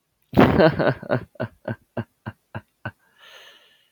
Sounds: Laughter